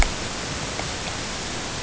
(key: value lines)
label: ambient
recorder: HydroMoth